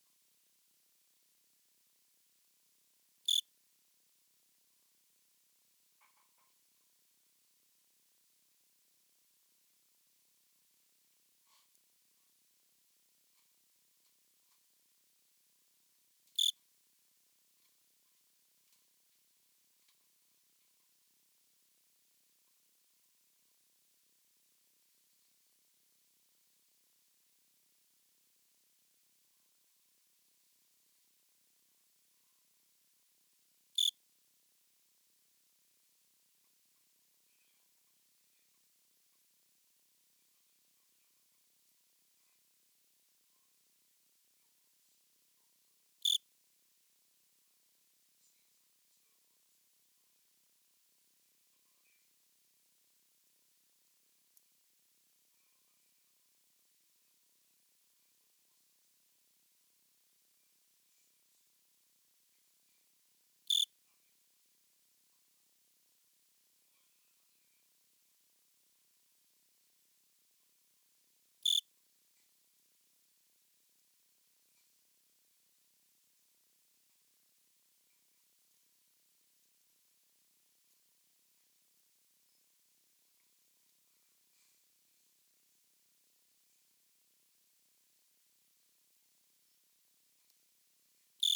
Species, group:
Eugryllodes pipiens
Orthoptera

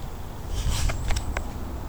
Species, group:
Nemobius sylvestris
Orthoptera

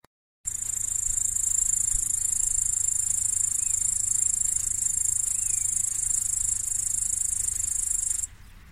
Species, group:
Tettigonia cantans
Orthoptera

